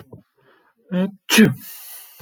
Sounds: Sneeze